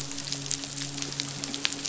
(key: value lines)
label: biophony, midshipman
recorder: SoundTrap 500